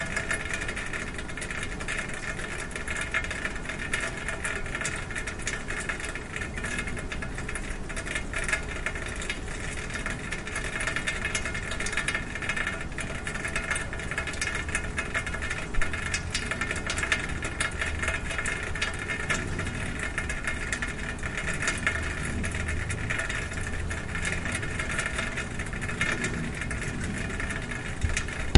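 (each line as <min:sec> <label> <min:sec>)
0:00.0 Water dripping on a material creates a repetitive metallic sound. 0:28.6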